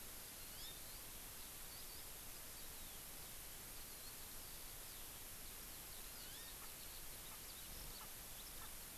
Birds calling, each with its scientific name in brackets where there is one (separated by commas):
Erckel's Francolin (Pternistis erckelii), Eurasian Skylark (Alauda arvensis), Hawaii Amakihi (Chlorodrepanis virens)